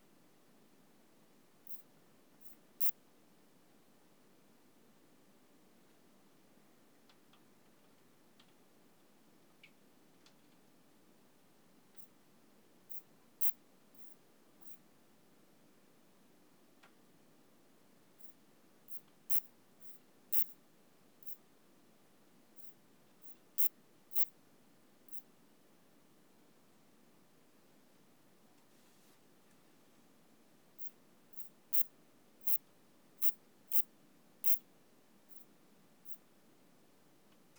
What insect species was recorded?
Pseudosubria bispinosa